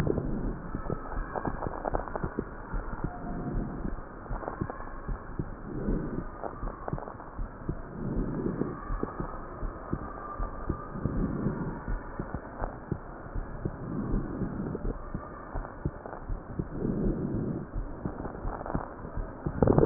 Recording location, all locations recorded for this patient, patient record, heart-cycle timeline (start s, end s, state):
pulmonary valve (PV)
aortic valve (AV)+pulmonary valve (PV)+tricuspid valve (TV)
#Age: nan
#Sex: Female
#Height: nan
#Weight: nan
#Pregnancy status: True
#Murmur: Absent
#Murmur locations: nan
#Most audible location: nan
#Systolic murmur timing: nan
#Systolic murmur shape: nan
#Systolic murmur grading: nan
#Systolic murmur pitch: nan
#Systolic murmur quality: nan
#Diastolic murmur timing: nan
#Diastolic murmur shape: nan
#Diastolic murmur grading: nan
#Diastolic murmur pitch: nan
#Diastolic murmur quality: nan
#Outcome: Normal
#Campaign: 2015 screening campaign
0.00	9.97	unannotated
9.97	10.37	diastole
10.37	10.52	S1
10.52	10.66	systole
10.66	10.78	S2
10.78	11.15	diastole
11.15	11.31	S1
11.31	11.44	systole
11.44	11.52	S2
11.52	11.86	diastole
11.86	12.00	S1
12.00	12.18	systole
12.18	12.24	S2
12.24	12.59	diastole
12.59	12.70	S1
12.70	12.89	systole
12.89	12.98	S2
12.98	13.33	diastole
13.33	13.43	S1
13.43	13.62	systole
13.62	13.72	S2
13.72	14.10	diastole
14.10	14.23	S1
14.23	14.39	systole
14.39	14.49	S2
14.49	14.82	diastole
14.82	14.94	S1
14.94	15.12	systole
15.12	15.20	S2
15.20	15.51	diastole
15.51	15.64	S1
15.64	15.82	systole
15.82	15.92	S2
15.92	16.27	diastole
16.27	16.38	S1
16.38	16.56	systole
16.56	16.66	S2
16.66	19.86	unannotated